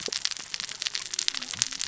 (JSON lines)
{"label": "biophony, cascading saw", "recorder": "SoundTrap 600 or HydroMoth"}